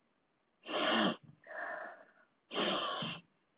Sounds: Sniff